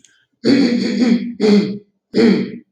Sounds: Throat clearing